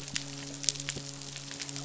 {"label": "biophony, midshipman", "recorder": "SoundTrap 500"}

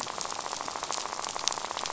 {"label": "biophony, rattle", "recorder": "SoundTrap 500"}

